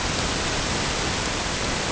{"label": "ambient", "recorder": "HydroMoth"}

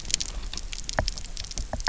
{"label": "biophony, knock", "recorder": "SoundTrap 300"}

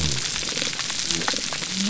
{"label": "biophony", "recorder": "SoundTrap 300"}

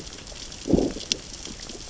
{"label": "biophony, growl", "recorder": "SoundTrap 600 or HydroMoth"}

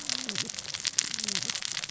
{"label": "biophony, cascading saw", "recorder": "SoundTrap 600 or HydroMoth"}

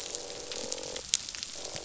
{"label": "biophony, croak", "recorder": "SoundTrap 500"}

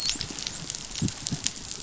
{"label": "biophony, dolphin", "recorder": "SoundTrap 500"}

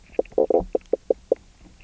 {"label": "biophony, knock croak", "recorder": "SoundTrap 300"}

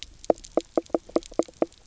{"label": "biophony, knock croak", "recorder": "SoundTrap 300"}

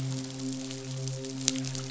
{"label": "biophony, midshipman", "recorder": "SoundTrap 500"}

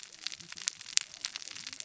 {"label": "biophony, cascading saw", "recorder": "SoundTrap 600 or HydroMoth"}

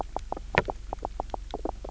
{"label": "biophony, knock croak", "recorder": "SoundTrap 300"}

